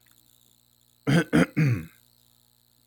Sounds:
Throat clearing